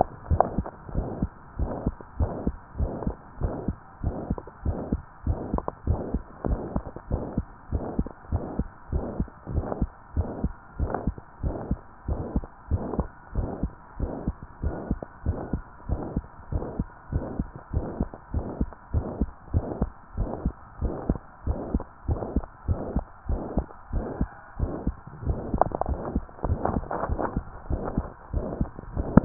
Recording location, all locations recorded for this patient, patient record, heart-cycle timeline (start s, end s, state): tricuspid valve (TV)
aortic valve (AV)+pulmonary valve (PV)+tricuspid valve (TV)+mitral valve (MV)
#Age: Child
#Sex: Female
#Height: 149.0 cm
#Weight: 32.9 kg
#Pregnancy status: False
#Murmur: Present
#Murmur locations: aortic valve (AV)+mitral valve (MV)+pulmonary valve (PV)+tricuspid valve (TV)
#Most audible location: tricuspid valve (TV)
#Systolic murmur timing: Holosystolic
#Systolic murmur shape: Plateau
#Systolic murmur grading: II/VI
#Systolic murmur pitch: Medium
#Systolic murmur quality: Harsh
#Diastolic murmur timing: nan
#Diastolic murmur shape: nan
#Diastolic murmur grading: nan
#Diastolic murmur pitch: nan
#Diastolic murmur quality: nan
#Outcome: Abnormal
#Campaign: 2015 screening campaign
0.00	0.94	unannotated
0.94	1.08	S1
1.08	1.20	systole
1.20	1.30	S2
1.30	1.56	diastole
1.56	1.72	S1
1.72	1.84	systole
1.84	1.94	S2
1.94	2.18	diastole
2.18	2.36	S1
2.36	2.46	systole
2.46	2.56	S2
2.56	2.78	diastole
2.78	2.92	S1
2.92	3.04	systole
3.04	3.14	S2
3.14	3.40	diastole
3.40	3.54	S1
3.54	3.66	systole
3.66	3.76	S2
3.76	4.02	diastole
4.02	4.14	S1
4.14	4.28	systole
4.28	4.38	S2
4.38	4.64	diastole
4.64	4.78	S1
4.78	4.90	systole
4.90	5.00	S2
5.00	5.28	diastole
5.28	5.40	S1
5.40	5.52	systole
5.52	5.62	S2
5.62	5.85	diastole
5.85	5.98	S1
5.98	6.12	systole
6.12	6.22	S2
6.22	6.46	diastole
6.46	6.60	S1
6.60	6.74	systole
6.74	6.84	S2
6.84	7.10	diastole
7.10	7.24	S1
7.24	7.36	systole
7.36	7.46	S2
7.46	7.72	diastole
7.72	7.86	S1
7.86	7.96	systole
7.96	8.06	S2
8.06	8.32	diastole
8.32	8.46	S1
8.46	8.58	systole
8.58	8.70	S2
8.70	8.94	diastole
8.94	9.06	S1
9.06	9.18	systole
9.18	9.28	S2
9.28	9.52	diastole
9.52	9.66	S1
9.66	9.80	systole
9.80	9.90	S2
9.90	10.16	diastole
10.16	10.30	S1
10.30	10.42	systole
10.42	10.54	S2
10.54	10.80	diastole
10.80	10.94	S1
10.94	11.06	systole
11.06	11.16	S2
11.16	11.42	diastole
11.42	11.56	S1
11.56	11.69	systole
11.69	11.80	S2
11.80	12.08	diastole
12.08	12.24	S1
12.24	12.34	systole
12.34	12.44	S2
12.44	12.70	diastole
12.70	12.82	S1
12.82	12.97	systole
12.97	13.07	S2
13.07	13.34	diastole
13.34	13.50	S1
13.50	13.60	systole
13.60	13.72	S2
13.72	13.97	diastole
13.97	14.12	S1
14.12	14.25	systole
14.25	14.36	S2
14.36	14.61	diastole
14.61	14.74	S1
14.74	14.87	systole
14.87	15.02	S2
15.02	15.23	diastole
15.23	15.40	S1
15.40	15.50	systole
15.50	15.64	S2
15.64	15.87	diastole
15.87	16.00	S1
16.00	16.14	systole
16.14	16.26	S2
16.26	16.50	diastole
16.50	16.66	S1
16.66	16.77	systole
16.77	16.88	S2
16.88	17.10	diastole
17.10	17.24	S1
17.24	17.36	systole
17.36	17.48	S2
17.48	17.71	diastole
17.71	17.84	S1
17.84	17.96	systole
17.96	18.10	S2
18.10	18.32	diastole
18.32	18.44	S1
18.44	18.56	systole
18.56	18.70	S2
18.70	18.92	diastole
18.92	19.06	S1
19.06	19.20	systole
19.20	19.32	S2
19.32	19.52	diastole
19.52	19.68	S1
19.68	19.79	systole
19.79	19.90	S2
19.90	20.17	diastole
20.17	20.30	S1
20.30	20.43	systole
20.43	20.56	S2
20.56	20.80	diastole
20.80	20.94	S1
20.94	21.07	systole
21.07	21.20	S2
21.20	21.44	diastole
21.44	21.58	S1
21.58	21.70	systole
21.70	21.84	S2
21.84	22.05	diastole
22.05	22.20	S1
22.20	22.32	systole
22.32	22.48	S2
22.48	22.65	diastole
22.65	22.84	S1
22.84	22.94	systole
22.94	23.08	S2
23.08	23.28	diastole
23.28	23.42	S1
23.42	23.56	systole
23.56	23.68	S2
23.68	23.89	diastole
23.89	24.05	S1
24.05	24.17	systole
24.17	24.30	S2
24.30	24.58	diastole
24.58	24.72	S1
24.72	24.86	systole
24.86	24.98	S2
24.98	29.25	unannotated